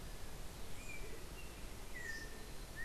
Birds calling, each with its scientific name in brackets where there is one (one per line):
Yellow-backed Oriole (Icterus chrysater)